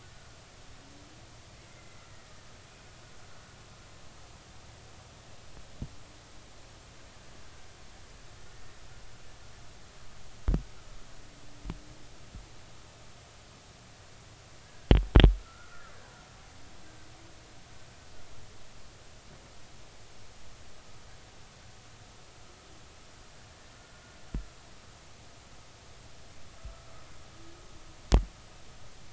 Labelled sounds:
1.7	2.0	killer whale, Bigg's (transient), 2.0 to 2.1 kHz
14.6	15.9	killer whale, Bigg's (transient), 1.2 to 1.9 kHz
23.7	24.0	killer whale, Bigg's (transient), 1.4 to 1.5 kHz
26.6	26.9	killer whale, Bigg's (transient), 1.2 to 1.4 kHz

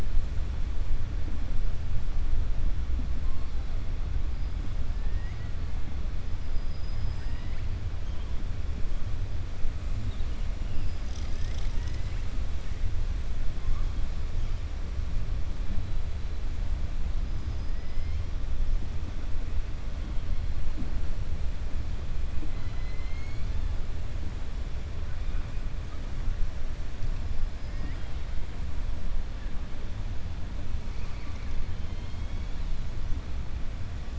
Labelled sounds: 5.0	5.5	killer whale, 0.88 to 2.9 kHz
6.5	7.6	killer whale, 0.94 to 5.1 kHz
17.7	18.2	killer whale, 1.3 to 3.1 kHz
22.4	23.5	killer whale, 1.4 to 4.6 kHz

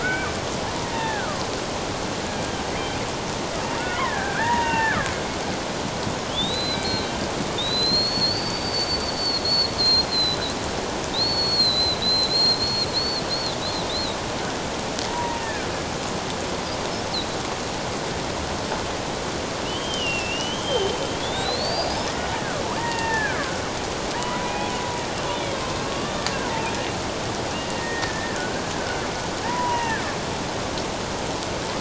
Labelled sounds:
0.0	0.4	killer whale, Bigg's (transient), 1.3 to 2.5 kHz
0.8	1.5	killer whale, Bigg's (transient), 0.78 to 2.8 kHz
3.8	5.0	killer whale, Bigg's (transient), 0.84 to 2.9 kHz
6.3	7.1	killer whale, Bigg's (transient), 2.2 to 4.1 kHz
7.6	10.5	killer whale, Bigg's (transient), 3.5 to 4.7 kHz
11.1	13.6	killer whale, Bigg's (transient), 3.5 to 8.0 kHz
13.9	14.2	killer whale, Bigg's (transient), 3.5 to 4.3 kHz
15.1	15.7	killer whale, Bigg's (transient), 0.88 to 1.9 kHz
19.6	22.1	killer whale, Bigg's (transient), 2.6 to 5.3 kHz
22.8	24.7	killer whale, Bigg's (transient), 0.84 to 2.8 kHz
25.3	26.1	killer whale, Bigg's (transient), 1.1 to 3.6 kHz
27.5	30.0	killer whale, Bigg's (transient), 0.84 to 2.9 kHz

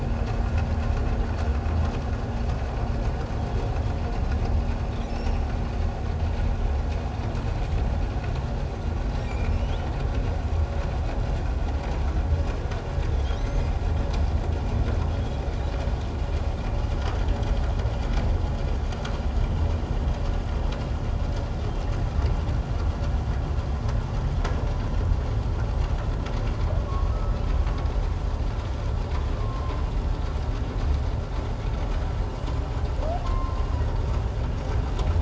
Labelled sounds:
9.3	9.6	humpback whale, 2.2 to 2.5 kHz
13.4	13.7	humpback whale, 1.9 to 2.2 kHz
26.9	27.1	humpback whale, 1.0 to 1.2 kHz
29.4	29.7	humpback whale, 1.0 to 1.1 kHz
33.2	33.7	humpback whale, 0.97 to 1.1 kHz

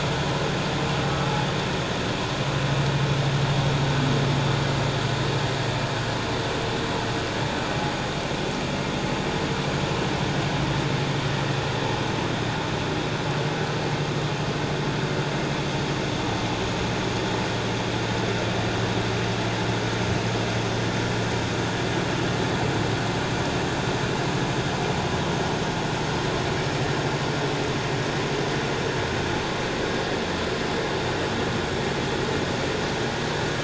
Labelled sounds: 8.8	9.0	humpback whale, 2.1 to 2.2 kHz

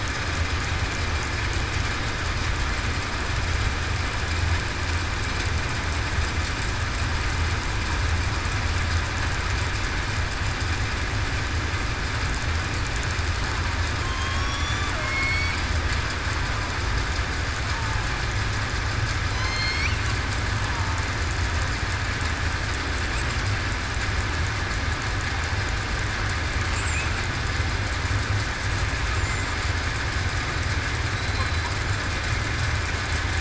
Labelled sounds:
14.0	15.6	killer whale, southern resident, 1.0 to 5.9 kHz
19.3	19.9	killer whale, southern resident, 3.0 to 4.6 kHz
31.1	31.7	killer whale, southern resident, 3.8 to 4.1 kHz

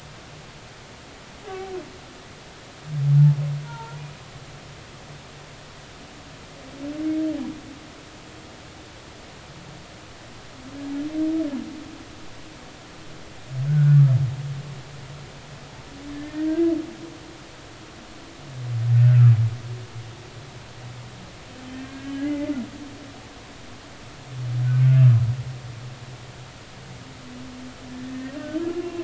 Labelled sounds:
1.4	1.7	humpback whale, 0.80 to 0.86 kHz
3.6	4.0	humpback whale, 0.83 to 1.5 kHz
13.7	14.0	humpback whale, 1.4 to 1.6 kHz
16.1	16.7	humpback whale, 1.5 to 1.9 kHz
21.8	22.5	humpback whale, 1.5 to 2.1 kHz
24.6	24.9	humpback whale, 1.4 to 1.6 kHz

